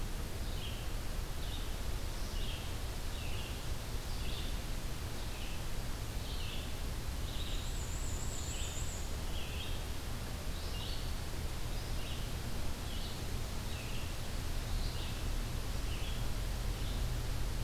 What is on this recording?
Red-eyed Vireo, Black-and-white Warbler